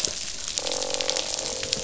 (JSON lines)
{"label": "biophony, croak", "recorder": "SoundTrap 500"}